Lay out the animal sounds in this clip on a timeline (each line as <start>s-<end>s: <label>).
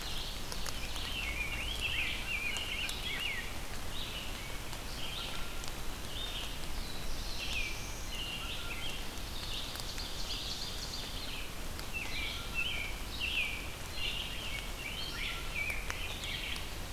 0.0s-1.1s: Ovenbird (Seiurus aurocapilla)
0.0s-16.9s: Red-eyed Vireo (Vireo olivaceus)
0.7s-3.6s: Rose-breasted Grosbeak (Pheucticus ludovicianus)
0.9s-3.6s: American Robin (Turdus migratorius)
5.1s-5.7s: Blue Jay (Cyanocitta cristata)
6.6s-8.2s: Black-throated Blue Warbler (Setophaga caerulescens)
8.1s-9.0s: American Robin (Turdus migratorius)
8.3s-9.0s: Blue Jay (Cyanocitta cristata)
9.2s-11.1s: Ovenbird (Seiurus aurocapilla)
11.7s-14.5s: American Robin (Turdus migratorius)
14.1s-16.6s: Rose-breasted Grosbeak (Pheucticus ludovicianus)